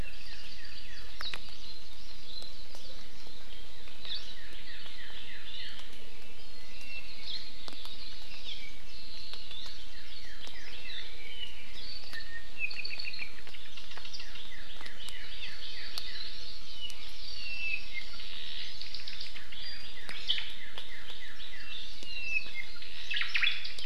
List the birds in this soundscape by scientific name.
Himatione sanguinea, Chlorodrepanis virens, Cardinalis cardinalis, Myadestes obscurus